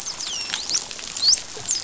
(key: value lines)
label: biophony, dolphin
recorder: SoundTrap 500